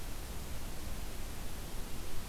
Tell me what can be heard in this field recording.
forest ambience